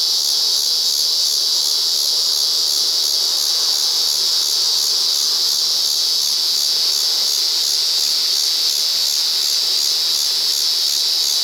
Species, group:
Megatibicen pronotalis
Cicadidae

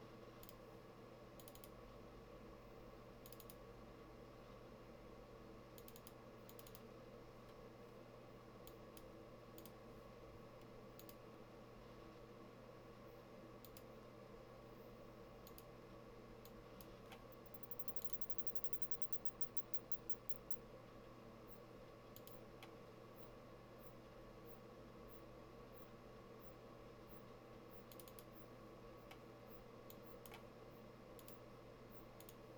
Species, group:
Isophya rectipennis
Orthoptera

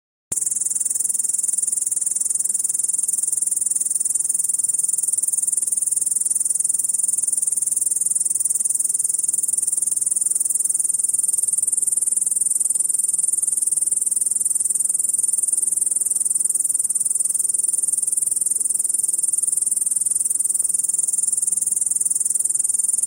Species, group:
Tettigonia cantans
Orthoptera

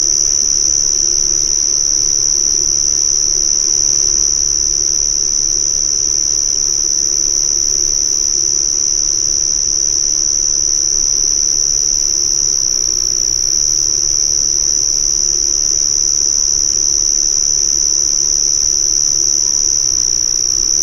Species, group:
Eunemobius carolinus
Orthoptera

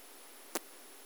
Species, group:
Poecilimon zwicki
Orthoptera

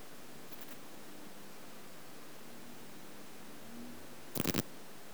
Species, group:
Poecilimon chopardi
Orthoptera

